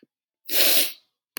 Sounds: Sniff